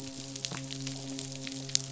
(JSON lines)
{"label": "biophony, midshipman", "recorder": "SoundTrap 500"}